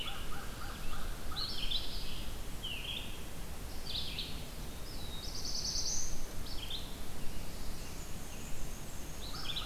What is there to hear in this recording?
American Crow, Red-eyed Vireo, Black-throated Blue Warbler, Black-and-white Warbler